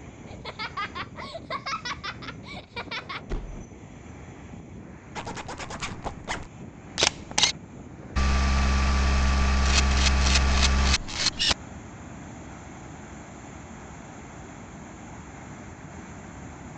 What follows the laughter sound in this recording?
slam